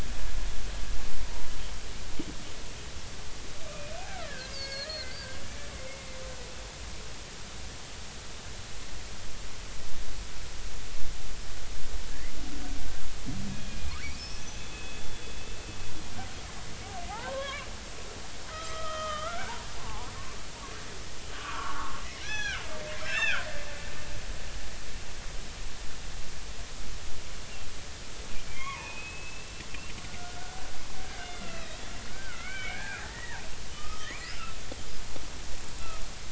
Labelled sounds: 1.2	1.5	killer whale, Bigg's (transient), 0.90 to 1.1 kHz
3.6	5.1	killer whale, Bigg's (transient), 1.2 to 5.1 kHz
5.5	5.8	killer whale, Bigg's (transient), 6.5 to 6.6 kHz
13.5	15.1	killer whale, Bigg's (transient), 1.6 to 5.3 kHz
17.1	17.7	killer whale, Bigg's (transient), 0.80 to 2.4 kHz
18.5	20.4	killer whale, Bigg's (transient), 0.80 to 3.2 kHz
21.2	23.5	killer whale, Bigg's (transient), 1.0 to 6.1 kHz
28.5	30.6	killer whale, Bigg's (transient), 0.83 to 3.4 kHz
31.2	34.5	killer whale, Bigg's (transient), 1.2 to 4.0 kHz

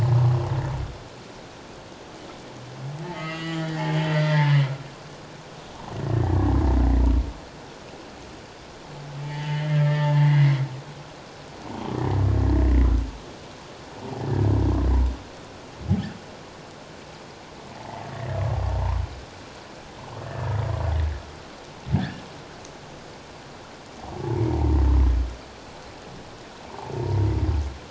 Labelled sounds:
3.0	4.7	humpback whale, 0.84 to 7.4 kHz
9.2	10.6	humpback whale, 0.84 to 3.2 kHz
14.2	14.4	humpback whale, 1.6 to 1.8 kHz
17.7	19.0	humpback whale, 0.78 to 2.0 kHz
20.3	20.5	humpback whale, 1.6 to 1.8 kHz
22.0	22.2	humpback whale, 1.5 to 1.9 kHz
24.2	24.5	humpback whale, 0.78 to 0.97 kHz
26.8	27.2	humpback whale, 0.78 to 1.0 kHz

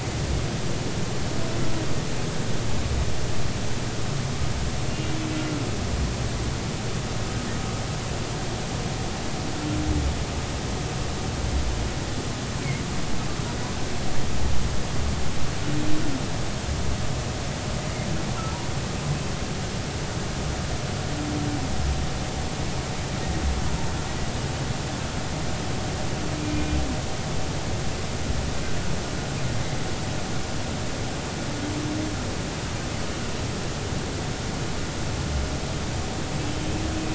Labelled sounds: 4.9	5.1	humpback whale, 2.7 to 2.8 kHz
6.3	6.6	humpback whale, 1.3 to 1.4 kHz
26.4	26.8	humpback whale, 2.3 to 2.5 kHz

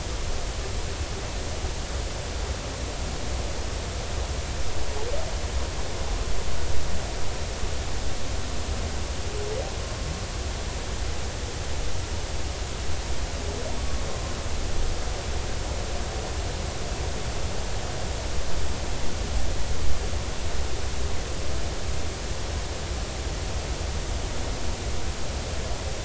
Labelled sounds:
14.1	14.4	humpback whale, 1.0 to 1.1 kHz

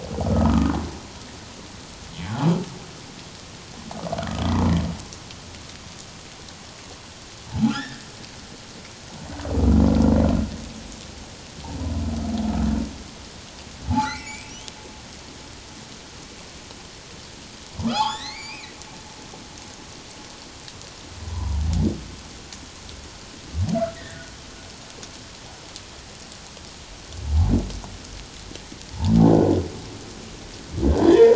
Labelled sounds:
0.2	0.7	humpback whale, 1.1 to 1.4 kHz
7.5	8.1	humpback whale, 0.78 to 1.9 kHz
13.9	14.5	humpback whale, 0.78 to 2.7 kHz
17.9	18.7	humpback whale, 0.78 to 5.2 kHz
21.2	21.6	humpback whale, 0.88 to 1.1 kHz
24.0	24.2	humpback whale, 1.6 to 2.0 kHz
31.0	31.3	humpback whale, 1.7 to 3.6 kHz

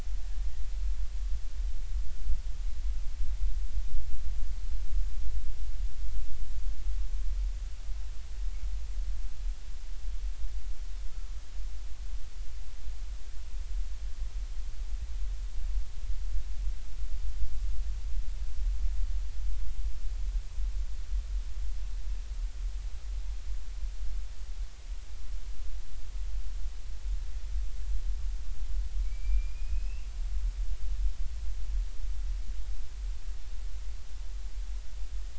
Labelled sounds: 29.0	30.1	killer whale, Bigg's (transient), 2.2 to 2.9 kHz

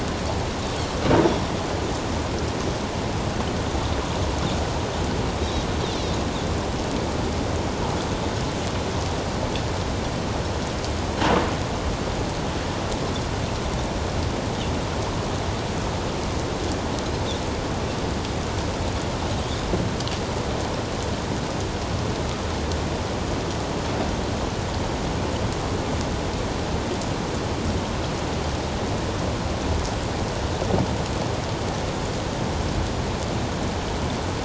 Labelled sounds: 5.9	6.2	Pacific white-sided dolphin, 3.5 to 4.2 kHz

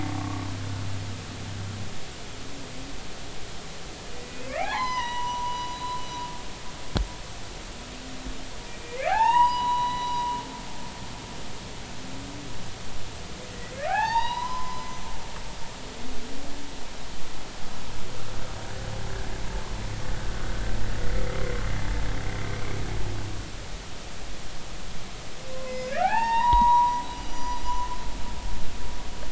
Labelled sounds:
0.2	0.5	humpback whale, 1.0 to 1.2 kHz
4.5	6.0	humpback whale, 0.80 to 6.2 kHz
8.7	10.3	humpback whale, 0.80 to 6.0 kHz
13.9	14.9	humpback whale, 0.80 to 5.0 kHz
20.3	20.6	humpback whale, 1.4 to 1.5 kHz
25.7	27.6	humpback whale, 0.80 to 6.9 kHz

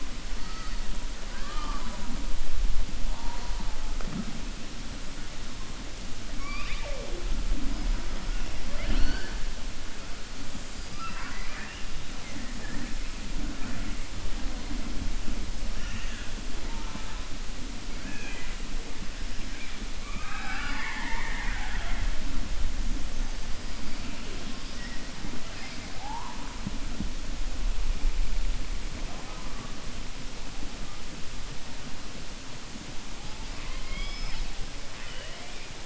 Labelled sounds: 10.9	11.8	killer whale, southern resident, 0.81 to 2.9 kHz
34.9	35.6	killer whale, southern resident, 0.67 to 3.5 kHz

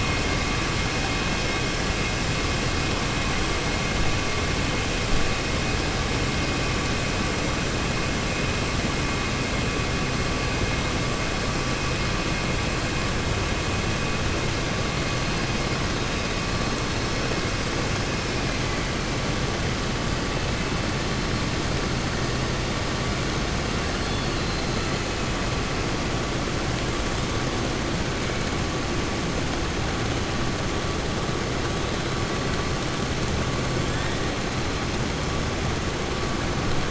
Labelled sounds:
23.9	24.7	killer whale, 3.4 to 5.2 kHz

